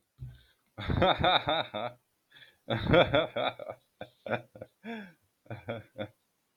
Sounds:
Laughter